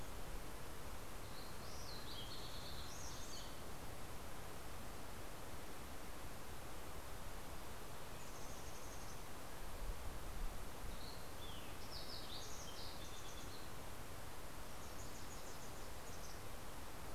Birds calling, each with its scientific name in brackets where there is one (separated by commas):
Wilson's Warbler (Cardellina pusilla), Fox Sparrow (Passerella iliaca), Mountain Chickadee (Poecile gambeli)